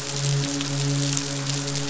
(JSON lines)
{"label": "biophony, midshipman", "recorder": "SoundTrap 500"}